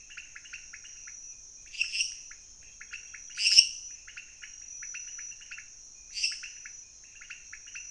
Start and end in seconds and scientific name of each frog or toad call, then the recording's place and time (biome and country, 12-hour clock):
0.0	7.9	Leptodactylus podicipinus
1.5	2.4	Dendropsophus minutus
3.4	3.7	Dendropsophus minutus
6.0	6.7	Dendropsophus minutus
Cerrado, Brazil, 11:00pm